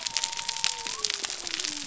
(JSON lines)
{"label": "biophony", "recorder": "SoundTrap 300"}